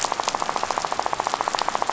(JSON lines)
{"label": "biophony, rattle", "recorder": "SoundTrap 500"}